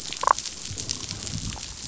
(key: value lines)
label: biophony, damselfish
recorder: SoundTrap 500